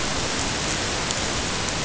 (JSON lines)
{"label": "ambient", "recorder": "HydroMoth"}